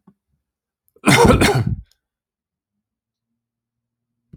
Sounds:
Cough